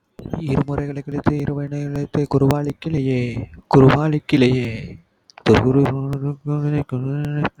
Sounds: Sigh